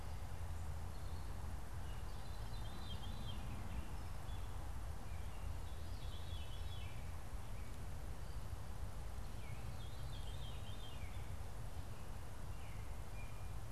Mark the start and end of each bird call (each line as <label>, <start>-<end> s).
Veery (Catharus fuscescens), 0.0-3.6 s
Veery (Catharus fuscescens), 4.9-11.3 s
Veery (Catharus fuscescens), 12.4-13.0 s